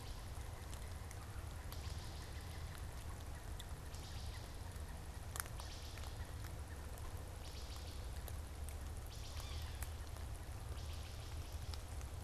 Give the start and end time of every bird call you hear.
0.0s-4.6s: Wood Thrush (Hylocichla mustelina)
0.0s-7.1s: Pileated Woodpecker (Dryocopus pileatus)
5.3s-9.5s: Wood Thrush (Hylocichla mustelina)
8.0s-11.6s: Pileated Woodpecker (Dryocopus pileatus)
9.2s-9.9s: Yellow-bellied Sapsucker (Sphyrapicus varius)
10.5s-12.2s: Wood Thrush (Hylocichla mustelina)

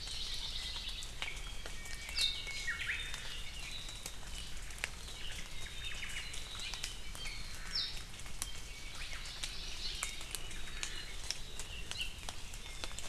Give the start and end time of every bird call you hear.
1.7s-3.0s: Japanese Bush Warbler (Horornis diphone)
2.1s-2.3s: Apapane (Himatione sanguinea)
2.9s-4.4s: Apapane (Himatione sanguinea)
5.0s-7.9s: Apapane (Himatione sanguinea)
5.2s-6.2s: Omao (Myadestes obscurus)
6.6s-6.7s: Hawaii Amakihi (Chlorodrepanis virens)
8.9s-9.2s: Hawaii Elepaio (Chasiempis sandwichensis)
10.3s-11.2s: Iiwi (Drepanis coccinea)
11.7s-12.1s: Apapane (Himatione sanguinea)
12.6s-13.0s: Iiwi (Drepanis coccinea)

